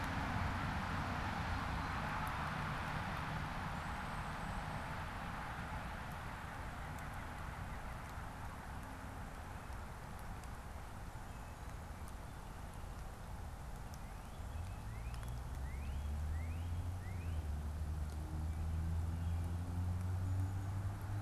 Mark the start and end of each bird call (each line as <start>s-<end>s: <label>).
13.6s-17.5s: Northern Cardinal (Cardinalis cardinalis)
14.4s-14.9s: American Robin (Turdus migratorius)